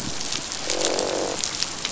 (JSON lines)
{"label": "biophony, croak", "recorder": "SoundTrap 500"}